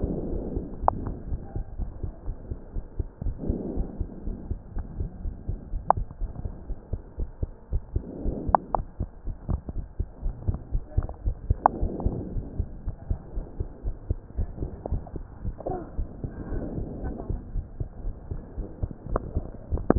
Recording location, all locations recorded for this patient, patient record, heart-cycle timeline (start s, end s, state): tricuspid valve (TV)
aortic valve (AV)+pulmonary valve (PV)+tricuspid valve (TV)+mitral valve (MV)
#Age: Child
#Sex: Male
#Height: nan
#Weight: nan
#Pregnancy status: False
#Murmur: Absent
#Murmur locations: nan
#Most audible location: nan
#Systolic murmur timing: nan
#Systolic murmur shape: nan
#Systolic murmur grading: nan
#Systolic murmur pitch: nan
#Systolic murmur quality: nan
#Diastolic murmur timing: nan
#Diastolic murmur shape: nan
#Diastolic murmur grading: nan
#Diastolic murmur pitch: nan
#Diastolic murmur quality: nan
#Outcome: Normal
#Campaign: 2015 screening campaign
0.00	1.42	unannotated
1.42	1.54	systole
1.54	1.64	S2
1.64	1.78	diastole
1.78	1.92	S1
1.92	2.02	systole
2.02	2.12	S2
2.12	2.26	diastole
2.26	2.36	S1
2.36	2.48	systole
2.48	2.58	S2
2.58	2.74	diastole
2.74	2.84	S1
2.84	2.96	systole
2.96	3.10	S2
3.10	3.26	diastole
3.26	3.38	S1
3.38	3.46	systole
3.46	3.60	S2
3.60	3.74	diastole
3.74	3.88	S1
3.88	3.98	systole
3.98	4.10	S2
4.10	4.26	diastole
4.26	4.38	S1
4.38	4.48	systole
4.48	4.58	S2
4.58	4.76	diastole
4.76	4.88	S1
4.88	4.98	systole
4.98	5.10	S2
5.10	5.24	diastole
5.24	5.34	S1
5.34	5.46	systole
5.46	5.58	S2
5.58	5.74	diastole
5.74	5.84	S1
5.84	5.94	systole
5.94	6.08	S2
6.08	6.22	diastole
6.22	6.34	S1
6.34	6.44	systole
6.44	6.54	S2
6.54	6.68	diastole
6.68	6.76	S1
6.76	6.92	systole
6.92	7.00	S2
7.00	7.20	diastole
7.20	7.30	S1
7.30	7.42	systole
7.42	7.52	S2
7.52	7.72	diastole
7.72	7.84	S1
7.84	7.94	systole
7.94	8.08	S2
8.08	8.26	diastole
8.26	8.36	S1
8.36	8.46	systole
8.46	8.60	S2
8.60	8.74	diastole
8.74	8.86	S1
8.86	9.00	systole
9.00	9.10	S2
9.10	9.26	diastole
9.26	9.36	S1
9.36	9.48	systole
9.48	9.62	S2
9.62	9.75	diastole
9.75	9.88	S1
9.88	9.96	systole
9.96	10.06	S2
10.06	10.24	diastole
10.24	10.38	S1
10.38	10.46	systole
10.46	10.60	S2
10.60	10.72	diastole
10.72	10.84	S1
10.84	10.94	systole
10.94	11.08	S2
11.08	11.24	diastole
11.24	11.38	S1
11.38	11.46	systole
11.46	11.62	S2
11.62	11.78	diastole
11.78	11.92	S1
11.92	12.00	systole
12.00	12.14	S2
12.14	12.32	diastole
12.32	12.44	S1
12.44	12.56	systole
12.56	12.70	S2
12.70	12.86	diastole
12.86	12.94	S1
12.94	13.08	systole
13.08	13.22	S2
13.22	13.36	diastole
13.36	13.46	S1
13.46	13.60	systole
13.60	13.72	S2
13.72	13.86	diastole
13.86	13.96	S1
13.96	14.06	systole
14.06	14.22	S2
14.22	14.38	diastole
14.38	14.52	S1
14.52	14.62	systole
14.62	14.74	S2
14.74	14.90	diastole
14.90	15.04	S1
15.04	15.14	systole
15.14	15.26	S2
15.26	15.44	diastole
15.44	15.56	S1
15.56	15.66	systole
15.66	15.78	S2
15.78	15.96	diastole
15.96	16.08	S1
16.08	16.20	systole
16.20	16.32	S2
16.32	16.48	diastole
16.48	16.60	S1
16.60	16.72	systole
16.72	16.88	S2
16.88	17.02	diastole
17.02	17.16	S1
17.16	17.28	systole
17.28	17.42	S2
17.42	17.54	diastole
17.54	17.66	S1
17.66	17.76	systole
17.76	17.88	S2
17.88	18.06	diastole
18.06	18.16	S1
18.16	18.30	systole
18.30	18.42	S2
18.42	18.58	diastole
18.58	18.70	S1
18.70	18.82	systole
18.82	18.92	S2
18.92	19.98	unannotated